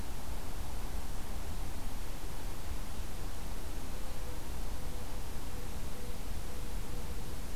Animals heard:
forest ambience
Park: Acadia National Park